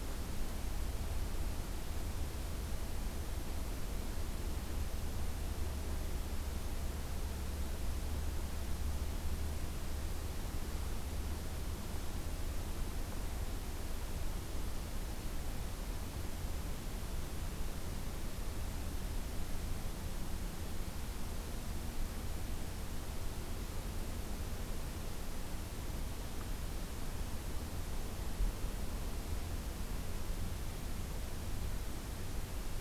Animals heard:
forest ambience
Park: Acadia National Park